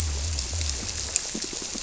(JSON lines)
{"label": "biophony", "recorder": "SoundTrap 300"}